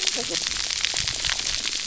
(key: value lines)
label: biophony, cascading saw
recorder: SoundTrap 300